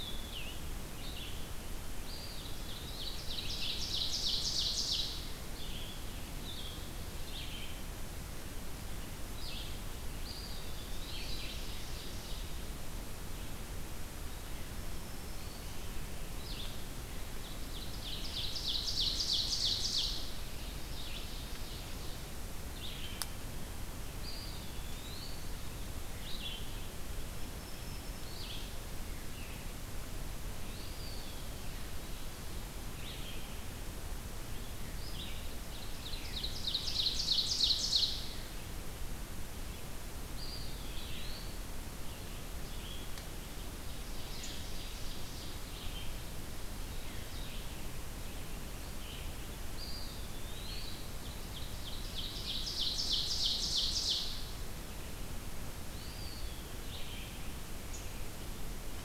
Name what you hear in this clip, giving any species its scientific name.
Vireo olivaceus, Contopus virens, Seiurus aurocapilla, Setophaga virens